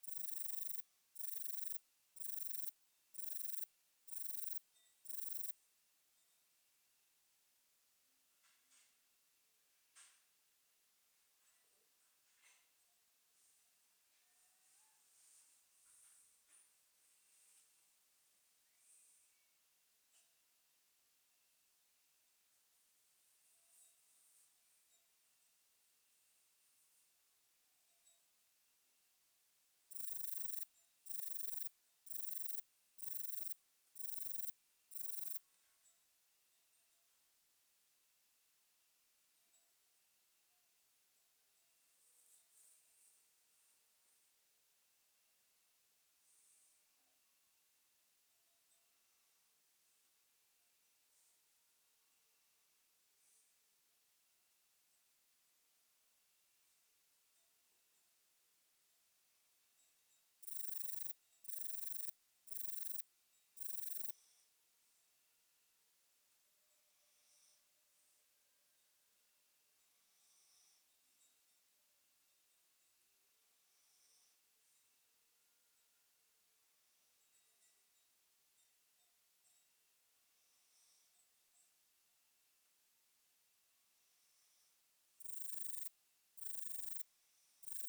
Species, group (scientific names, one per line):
Rhacocleis lithoscirtetes
Orthoptera